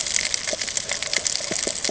{"label": "ambient", "recorder": "HydroMoth"}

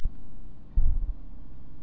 {"label": "anthrophony, boat engine", "recorder": "SoundTrap 300"}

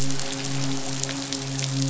{"label": "biophony, midshipman", "recorder": "SoundTrap 500"}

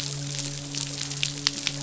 {"label": "biophony, midshipman", "recorder": "SoundTrap 500"}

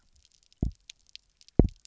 {"label": "biophony, double pulse", "recorder": "SoundTrap 300"}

